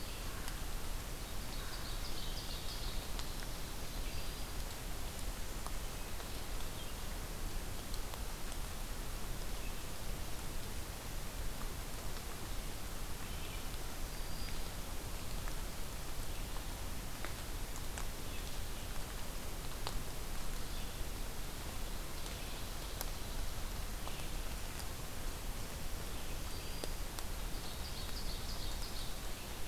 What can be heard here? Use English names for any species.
American Crow, Red-eyed Vireo, Ovenbird, Black-throated Green Warbler